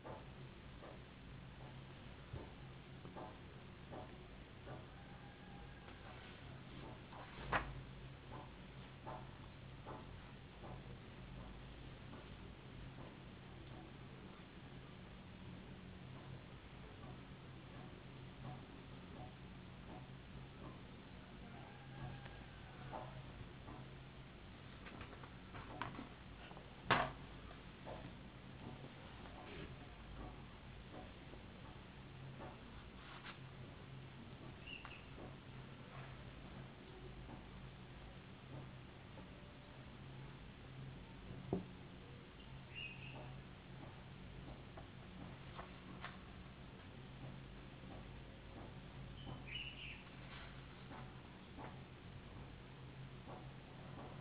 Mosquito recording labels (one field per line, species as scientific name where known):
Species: no mosquito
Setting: insect culture